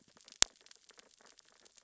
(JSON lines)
{"label": "biophony, sea urchins (Echinidae)", "recorder": "SoundTrap 600 or HydroMoth"}